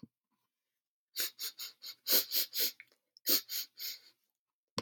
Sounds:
Sniff